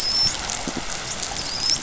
{"label": "biophony, dolphin", "recorder": "SoundTrap 500"}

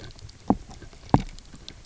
{"label": "biophony, double pulse", "recorder": "SoundTrap 300"}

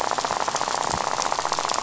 {"label": "biophony, rattle", "recorder": "SoundTrap 500"}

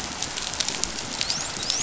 {"label": "biophony, dolphin", "recorder": "SoundTrap 500"}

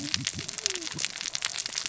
{"label": "biophony, cascading saw", "recorder": "SoundTrap 600 or HydroMoth"}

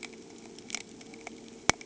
{"label": "anthrophony, boat engine", "recorder": "HydroMoth"}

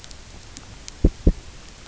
{"label": "biophony, knock", "recorder": "SoundTrap 300"}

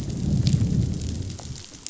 {"label": "biophony, growl", "recorder": "SoundTrap 500"}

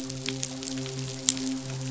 {"label": "biophony, midshipman", "recorder": "SoundTrap 500"}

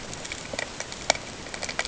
{"label": "ambient", "recorder": "HydroMoth"}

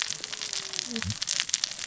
{"label": "biophony, cascading saw", "recorder": "SoundTrap 600 or HydroMoth"}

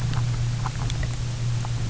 {"label": "anthrophony, boat engine", "recorder": "SoundTrap 300"}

